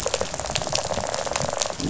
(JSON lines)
{"label": "biophony, rattle response", "recorder": "SoundTrap 500"}